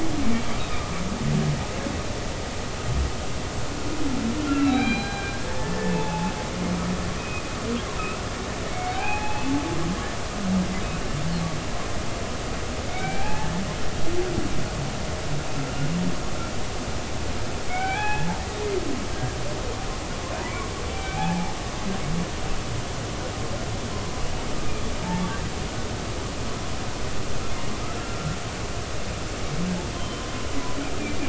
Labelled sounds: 0.6	0.9	humpback whale, 3.6 to 3.9 kHz
4.4	6.3	humpback whale, 0.80 to 4.1 kHz
7.2	7.4	humpback whale, 2.4 to 2.6 kHz
8.7	9.5	humpback whale, 0.80 to 2.7 kHz
12.9	13.6	humpback whale, 0.80 to 2.6 kHz
17.7	18.3	humpback whale, 0.80 to 2.6 kHz
20.4	21.5	humpback whale, 0.80 to 2.6 kHz
27.9	28.4	humpback whale, 1.3 to 1.5 kHz
30.0	30.2	humpback whale, 3.0 to 3.2 kHz

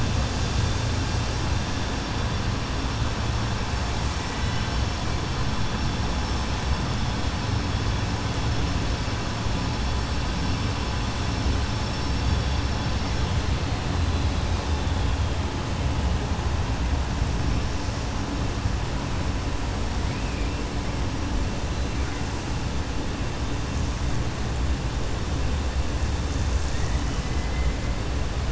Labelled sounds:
27.0	27.7	killer whale, 2.0 to 3.1 kHz

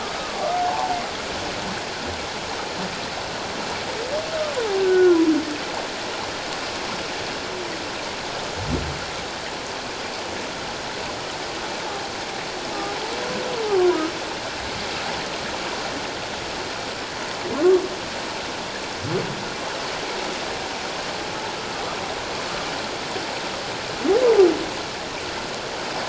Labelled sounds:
0.0	0.9	humpback whale, 0.78 to 1.3 kHz
4.8	5.2	humpback whale, 1.3 to 1.6 kHz
13.7	14.0	humpback whale, 0.94 to 1.3 kHz

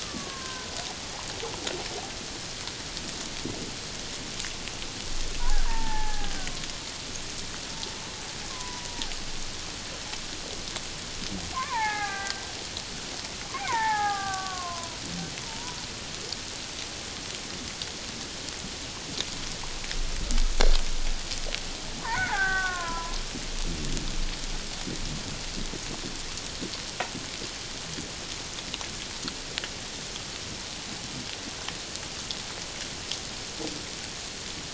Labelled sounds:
0.0	0.7	killer whale, Bigg's (transient), 0.97 to 1.6 kHz
5.4	6.4	killer whale, Bigg's (transient), 0.78 to 1.9 kHz
8.5	8.9	killer whale, Bigg's (transient), 0.94 to 1.1 kHz
11.5	12.4	killer whale, Bigg's (transient), 0.78 to 2.7 kHz
13.7	15.0	killer whale, Bigg's (transient), 0.78 to 1.9 kHz
15.4	15.8	killer whale, Bigg's (transient), 0.84 to 1.0 kHz
22.1	23.2	killer whale, Bigg's (transient), 0.78 to 2.0 kHz

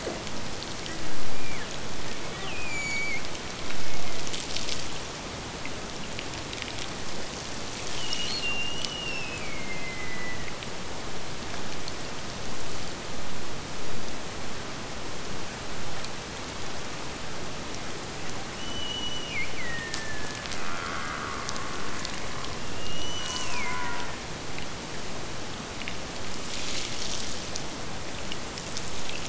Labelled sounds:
7.8	10.6	killer whale, Bigg's (transient), Gulf of Alaska transient, 1.8 to 6.0 kHz
18.5	20.6	killer whale, Bigg's (transient), Gulf of Alaska transient, 1.6 to 6.5 kHz
22.8	24.1	killer whale, Bigg's (transient), Gulf of Alaska transient, 1.7 to 6.2 kHz

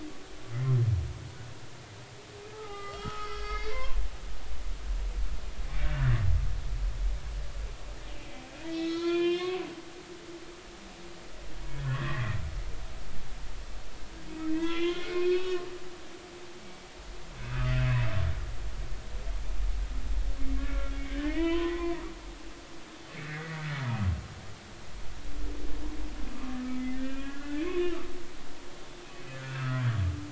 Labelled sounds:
2.5	4.0	humpback whale, 0.80 to 5.6 kHz
5.8	6.3	humpback whale, 1.3 to 2.0 kHz
8.7	9.6	humpback whale, 0.96 to 5.1 kHz
11.8	12.4	humpback whale, 1.0 to 2.1 kHz
14.5	15.7	humpback whale, 1.0 to 3.8 kHz
16.6	16.9	humpback whale, 2.2 to 2.3 kHz
17.5	17.7	humpback whale, 1.2 to 1.4 kHz
20.6	22.1	humpback whale, 0.90 to 3.2 kHz
23.2	23.6	humpback whale, 1.8 to 2.2 kHz
26.3	26.6	humpback whale, 1.0 to 1.3 kHz
27.0	27.9	humpback whale, 1.3 to 3.1 kHz
29.3	29.8	humpback whale, 1.2 to 1.8 kHz

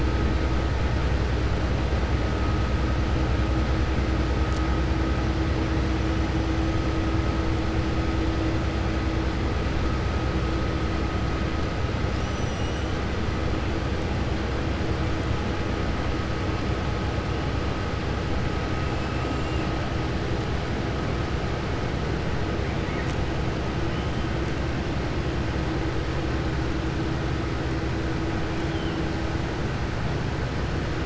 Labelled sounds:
12.1	12.9	killer whale, Bigg's (transient), 5.0 to 7.8 kHz

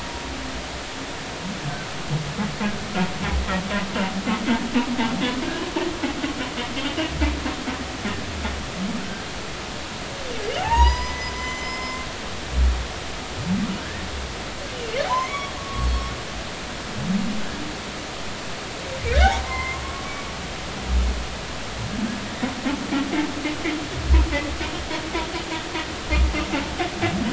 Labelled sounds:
9.0	9.2	humpback whale, 1.4 to 1.6 kHz
10.6	12.1	humpback whale, 0.80 to 7.2 kHz
13.8	14.0	humpback whale, 1.5 to 1.9 kHz
15.0	15.9	humpback whale, 0.80 to 3.5 kHz
19.4	19.8	humpback whale, 0.90 to 2.2 kHz

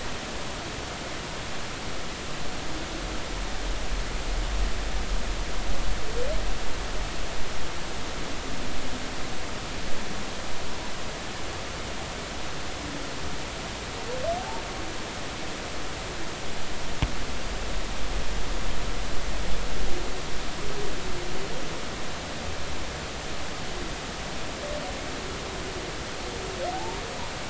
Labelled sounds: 14.4	14.6	humpback whale, 0.80 to 0.96 kHz
26.7	27.0	humpback whale, 0.80 to 0.96 kHz

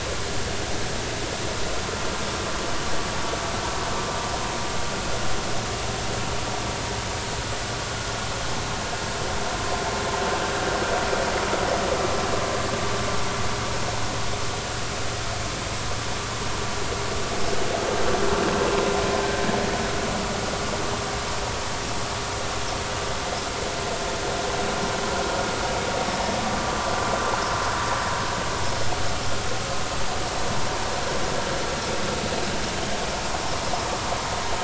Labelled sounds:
26.6	26.9	vessel noise, 1.15 to 1.25 kHz

